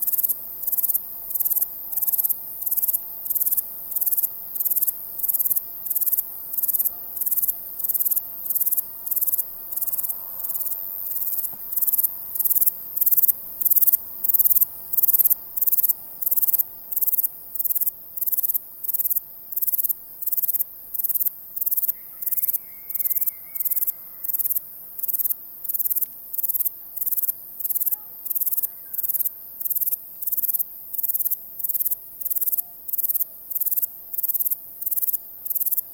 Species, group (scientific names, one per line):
Platycleis sabulosa
Orthoptera